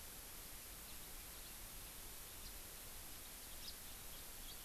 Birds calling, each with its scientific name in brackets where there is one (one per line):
House Finch (Haemorhous mexicanus)